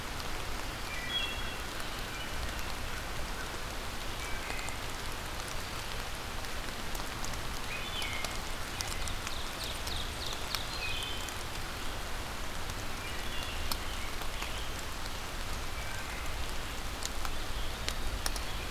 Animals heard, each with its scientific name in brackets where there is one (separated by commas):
American Crow (Corvus brachyrhynchos), Ovenbird (Seiurus aurocapilla), Wood Thrush (Hylocichla mustelina), Rose-breasted Grosbeak (Pheucticus ludovicianus)